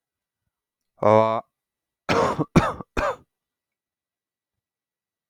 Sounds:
Cough